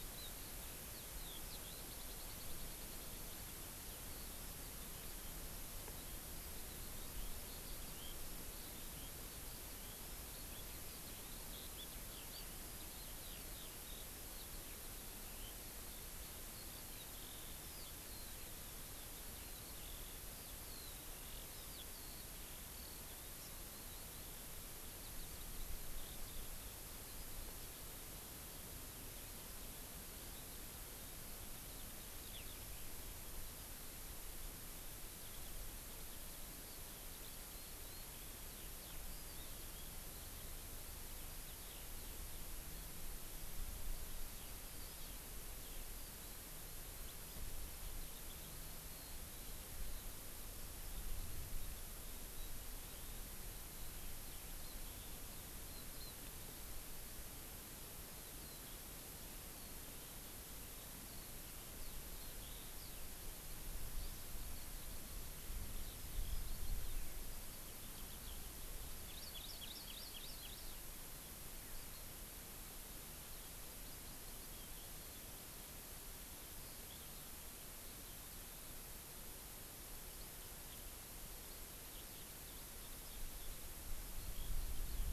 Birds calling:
Hawaii Amakihi (Chlorodrepanis virens)
Eurasian Skylark (Alauda arvensis)

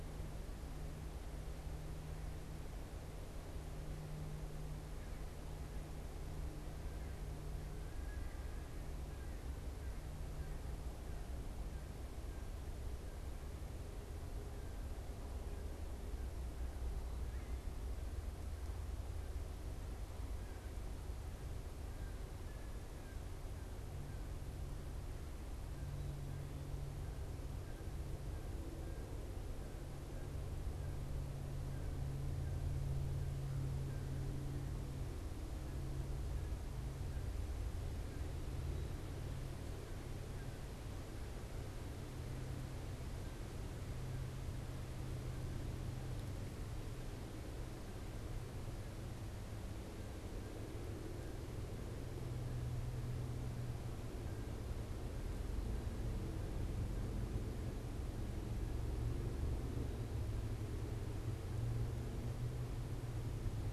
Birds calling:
American Crow (Corvus brachyrhynchos)

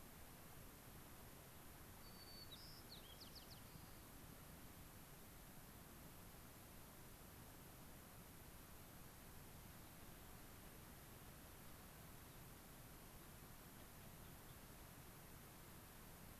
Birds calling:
White-crowned Sparrow (Zonotrichia leucophrys)

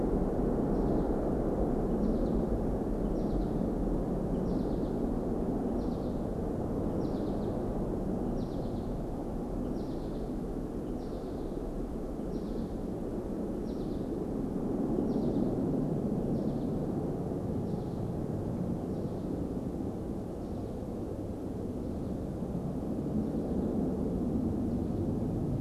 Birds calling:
American Goldfinch (Spinus tristis)

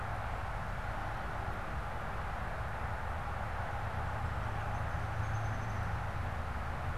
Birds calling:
Downy Woodpecker (Dryobates pubescens)

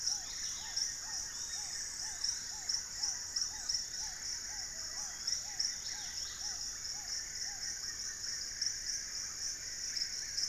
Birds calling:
Wing-barred Piprites (Piprites chloris)
Dusky-capped Greenlet (Pachysylvia hypoxantha)
Yellow-margined Flycatcher (Tolmomyias assimilis)
Forest Elaenia (Myiopagis gaimardii)
Black-tailed Trogon (Trogon melanurus)
White-lored Tyrannulet (Ornithion inerme)
Black-fronted Nunbird (Monasa nigrifrons)

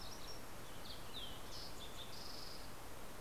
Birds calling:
Fox Sparrow (Passerella iliaca)
MacGillivray's Warbler (Geothlypis tolmiei)

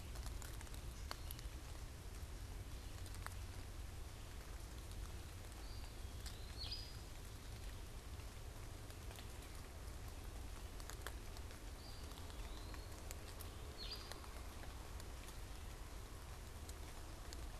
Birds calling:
Eastern Wood-Pewee (Contopus virens)
unidentified bird

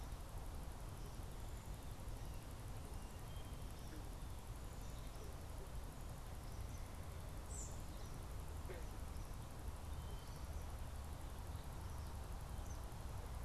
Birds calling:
unidentified bird

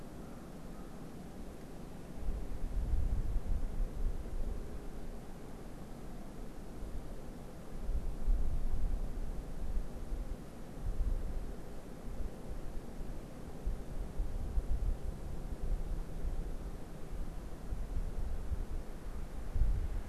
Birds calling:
American Crow (Corvus brachyrhynchos)

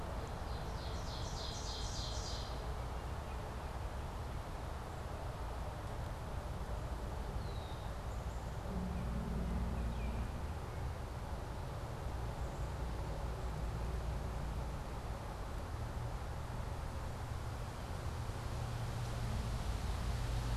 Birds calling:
Red-winged Blackbird (Agelaius phoeniceus)
Baltimore Oriole (Icterus galbula)
Ovenbird (Seiurus aurocapilla)

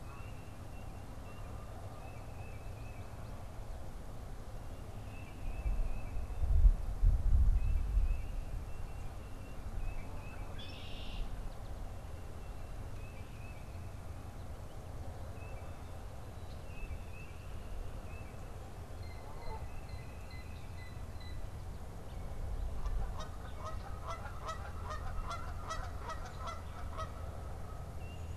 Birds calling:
Red-winged Blackbird (Agelaius phoeniceus)
Blue Jay (Cyanocitta cristata)
Tufted Titmouse (Baeolophus bicolor)
Canada Goose (Branta canadensis)

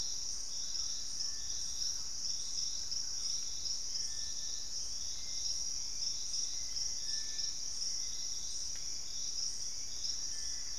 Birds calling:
Little Tinamou (Crypturellus soui)
Purple-throated Fruitcrow (Querula purpurata)
Thrush-like Wren (Campylorhynchus turdinus)
Hauxwell's Thrush (Turdus hauxwelli)
Gray Antbird (Cercomacra cinerascens)

